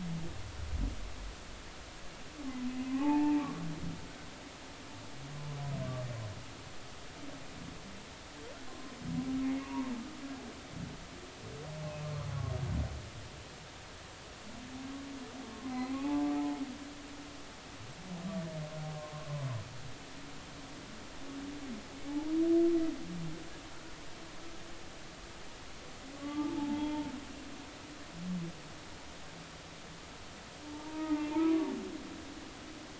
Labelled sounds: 2.9	3.5	humpback whale, 0.80 to 2.6 kHz
8.7	8.9	humpback whale, 0.99 to 1.1 kHz
9.6	9.9	humpback whale, 0.86 to 1.2 kHz
15.6	16.3	humpback whale, 0.80 to 2.6 kHz
22.0	22.3	humpback whale, 0.80 to 0.99 kHz
26.2	27.1	humpback whale, 0.80 to 3.4 kHz
30.6	31.6	humpback whale, 0.83 to 2.2 kHz

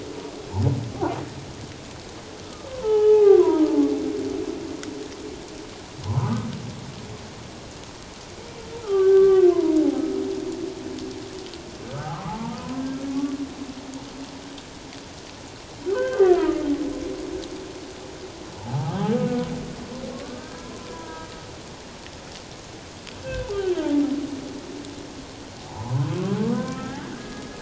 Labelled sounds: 2.4	3.7	humpback whale, 0.78 to 1.8 kHz
6.0	6.5	humpback whale, 0.81 to 1.3 kHz
8.8	9.8	humpback whale, 0.91 to 1.7 kHz
11.9	12.8	humpback whale, 0.78 to 1.6 kHz
15.9	16.7	humpback whale, 1.2 to 3.2 kHz
18.6	18.9	humpback whale, 0.78 to 1.0 kHz
20.1	21.3	humpback whale, 0.91 to 1.7 kHz
23.2	23.5	humpback whale, 1.5 to 2.7 kHz
25.7	27.4	humpback whale, 0.78 to 2.0 kHz

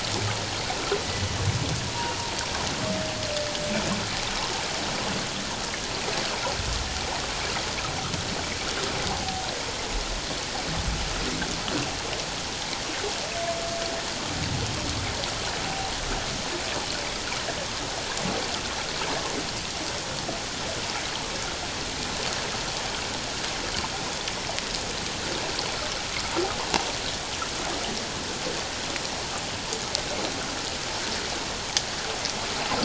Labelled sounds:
15.7	15.9	humpback whale, 0.78 to 0.84 kHz

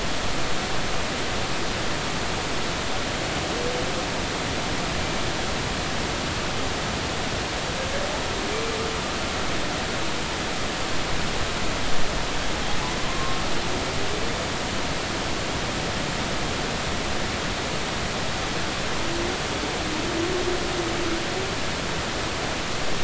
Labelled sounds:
13.1	13.4	humpback whale, 1.0 to 1.1 kHz

